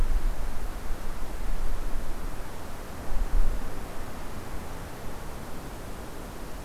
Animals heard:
forest ambience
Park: Hubbard Brook Experimental Forest